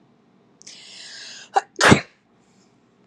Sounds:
Sneeze